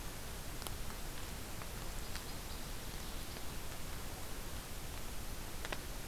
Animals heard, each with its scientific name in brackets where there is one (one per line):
Northern Waterthrush (Parkesia noveboracensis)